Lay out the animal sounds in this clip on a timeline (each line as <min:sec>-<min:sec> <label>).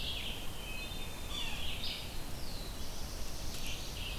0:00.0-0:04.2 Red-eyed Vireo (Vireo olivaceus)
0:00.4-0:01.3 Wood Thrush (Hylocichla mustelina)
0:01.1-0:01.8 Yellow-bellied Sapsucker (Sphyrapicus varius)
0:01.9-0:04.2 Black-throated Blue Warbler (Setophaga caerulescens)
0:03.6-0:04.2 Pine Warbler (Setophaga pinus)